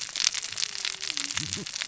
{"label": "biophony, cascading saw", "recorder": "SoundTrap 600 or HydroMoth"}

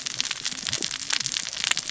{"label": "biophony, cascading saw", "recorder": "SoundTrap 600 or HydroMoth"}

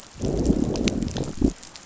{"label": "biophony, growl", "recorder": "SoundTrap 500"}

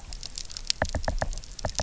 {"label": "biophony, knock", "recorder": "SoundTrap 300"}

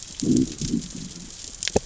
{"label": "biophony, growl", "recorder": "SoundTrap 600 or HydroMoth"}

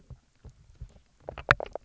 {"label": "biophony, knock croak", "recorder": "SoundTrap 300"}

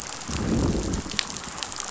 {"label": "biophony, growl", "recorder": "SoundTrap 500"}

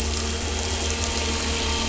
{"label": "anthrophony, boat engine", "recorder": "SoundTrap 300"}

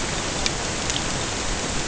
{"label": "ambient", "recorder": "HydroMoth"}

